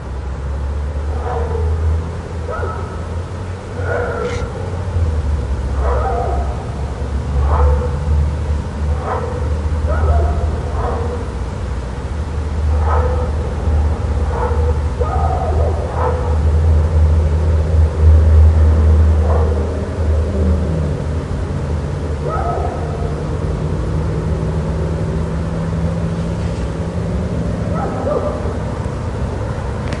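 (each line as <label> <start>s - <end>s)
Dogs barking quietly and repeatedly in the background. 0.0s - 23.2s
Loud outdoor noises and the sound of a car driving. 0.1s - 30.0s
Dogs barking quietly and repeatedly in the background. 27.5s - 28.6s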